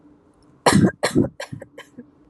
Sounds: Cough